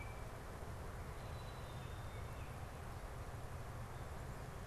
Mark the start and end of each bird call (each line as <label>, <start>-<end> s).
Black-capped Chickadee (Poecile atricapillus), 0.0-4.7 s